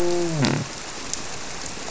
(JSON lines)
{"label": "biophony, grouper", "recorder": "SoundTrap 300"}